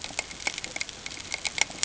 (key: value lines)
label: ambient
recorder: HydroMoth